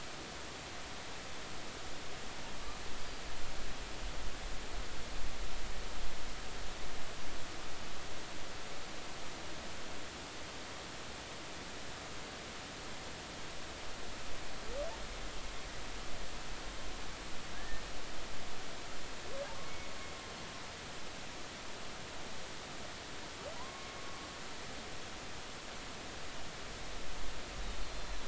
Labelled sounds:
17.5	17.8	humpback whale, 1.5 to 1.9 kHz
19.6	19.9	humpback whale, 2.1 to 2.3 kHz
23.5	24.0	humpback whale, 0.93 to 1.1 kHz
27.8	28.2	humpback whale, 4.0 to 4.3 kHz

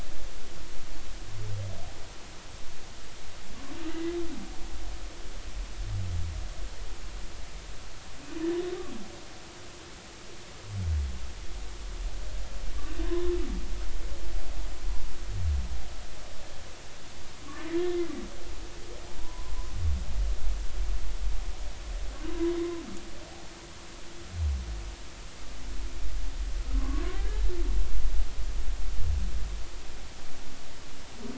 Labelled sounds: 3.9	4.1	humpback whale, 1.9 to 2.1 kHz
13.0	13.3	humpback whale, 0.96 to 1.2 kHz
19.2	19.5	humpback whale, 0.93 to 1.1 kHz
22.6	22.8	humpback whale, 0.93 to 1.1 kHz
26.7	27.4	humpback whale, 0.99 to 1.8 kHz

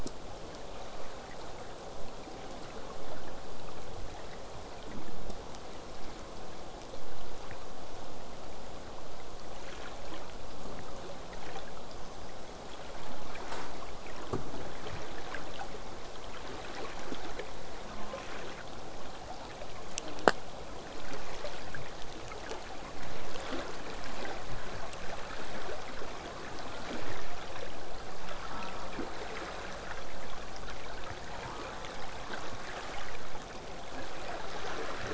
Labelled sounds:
17.9	18.7	killer whale, southern resident, J pod, call S04, 0.21 to 1.3 kHz
19.9	20.3	killer whale, southern resident, J pod, call S04, 0.15 to 1.5 kHz
28.5	29.1	killer whale, southern resident, J pod, call S04, 0.15 to 1.5 kHz
31.5	32.9	killer whale, southern resident, J pod, call S04, 0.23 to 1.6 kHz

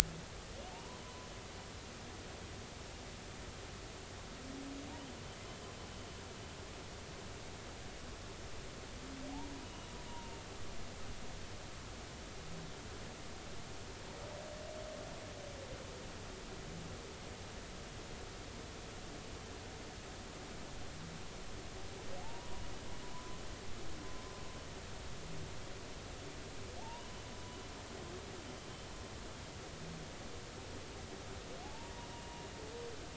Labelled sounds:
1.0	1.3	humpback whale, 0.96 to 1.1 kHz
10.1	10.4	humpback whale, 0.90 to 1.0 kHz
22.2	22.5	humpback whale, 0.80 to 1.0 kHz
23.1	23.4	humpback whale, 0.96 to 1.1 kHz
26.8	27.0	humpback whale, 0.80 to 1.0 kHz
31.6	31.9	humpback whale, 0.80 to 0.99 kHz

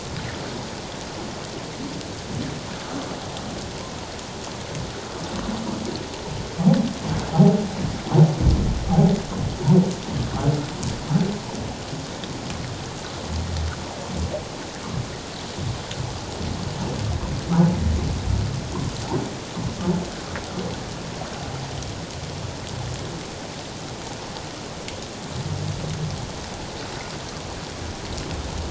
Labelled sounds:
8.9	9.1	humpback whale, 0.78 to 0.88 kHz

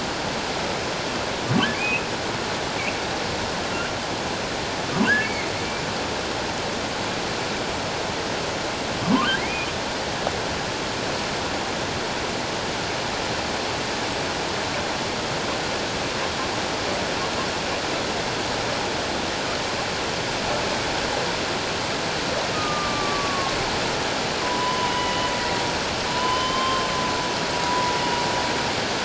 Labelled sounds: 1.7	2.1	humpback whale, 2.1 to 2.8 kHz
5.2	5.5	humpback whale, 2.1 to 2.3 kHz
9.4	9.7	humpback whale, 1.9 to 2.6 kHz
22.5	23.6	humpback whale, 1.0 to 1.3 kHz
24.4	25.3	humpback whale, 0.94 to 3.1 kHz
26.1	26.9	humpback whale, 0.94 to 3.2 kHz
27.7	27.9	humpback whale, 0.94 to 1.0 kHz

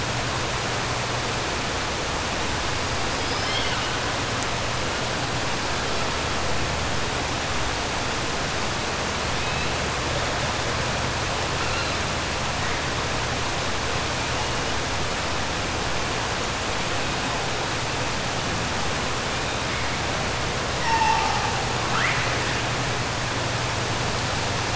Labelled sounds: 20.7	21.5	killer whale, 0.77 to 3.1 kHz

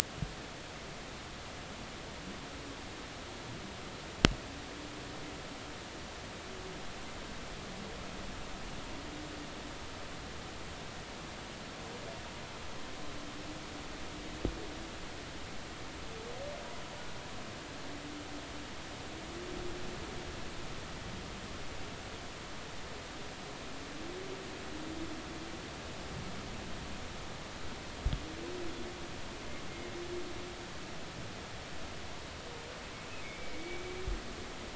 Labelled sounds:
33.2	33.8	humpback whale, 2.1 to 2.3 kHz

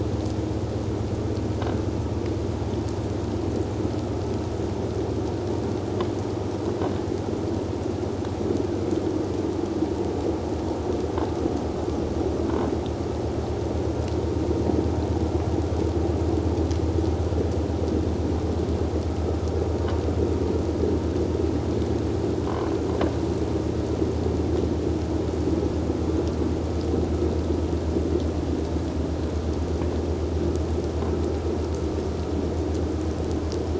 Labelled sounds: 22.4	22.7	croaking sound likely from a nearby submerged object, 1.0 to 1.1 kHz

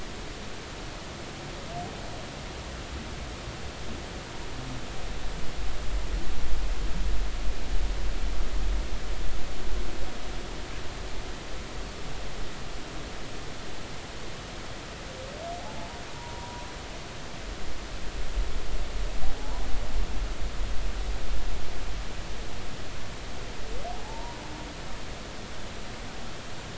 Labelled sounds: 16.1	16.6	humpback whale, 0.90 to 1.0 kHz
19.4	19.6	humpback whale, 0.80 to 1.0 kHz
24.0	24.4	humpback whale, 0.80 to 1.0 kHz

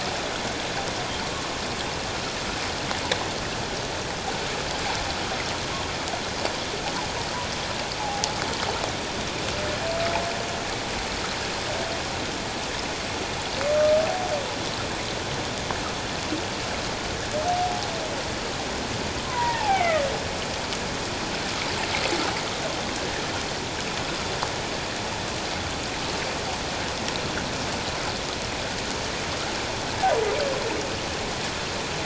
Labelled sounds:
8.0	8.4	humpback whale, 0.78 to 0.97 kHz
17.5	17.9	humpback whale, 0.78 to 0.84 kHz
19.3	20.0	humpback whale, 0.78 to 2.4 kHz

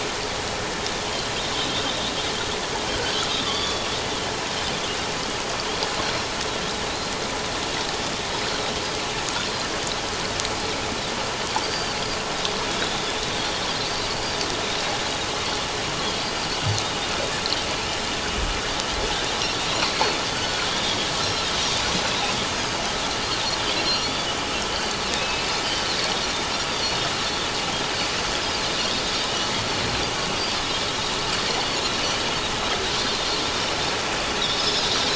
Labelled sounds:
1.0	1.3	Pacific white-sided dolphin, 2.9 to 3.3 kHz
3.4	3.8	Pacific white-sided dolphin, 1.1 to 4.7 kHz
6.0	6.3	Pacific white-sided dolphin, 4.0 to 5.7 kHz
11.6	12.0	Pacific white-sided dolphin, 4.4 to 4.8 kHz
13.9	14.1	Pacific white-sided dolphin, 4.5 to 4.8 kHz
16.0	16.3	Pacific white-sided dolphin, 4.1 to 4.3 kHz
20.3	20.7	Pacific white-sided dolphin, 1.3 to 1.5 kHz
21.2	21.5	Pacific white-sided dolphin, 3.6 to 5.6 kHz
23.7	24.1	Pacific white-sided dolphin, 4.1 to 5.8 kHz
24.7	25.5	Pacific white-sided dolphin, 2.5 to 4.7 kHz
26.5	26.8	Pacific white-sided dolphin, 4.6 to 4.8 kHz
27.1	27.4	Pacific white-sided dolphin, 3.9 to 4.4 kHz
34.4	34.8	Pacific white-sided dolphin, 3.3 to 5.3 kHz

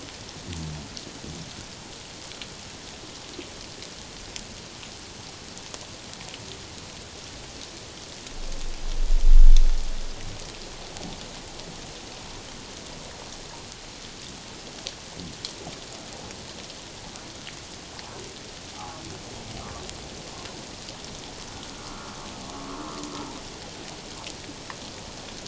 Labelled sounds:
18.7	19.0	humpback whale, 0.78 to 1.3 kHz

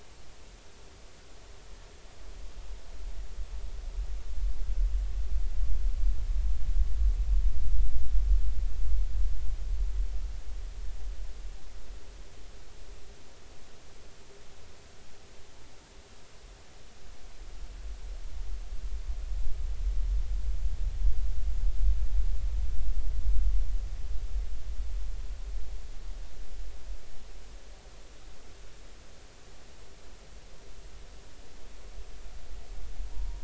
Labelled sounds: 33.1	33.4	vessel noise, 0.86 to 1.0 kHz

